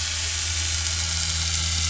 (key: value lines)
label: anthrophony, boat engine
recorder: SoundTrap 500